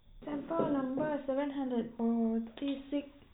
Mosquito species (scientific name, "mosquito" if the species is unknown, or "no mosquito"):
no mosquito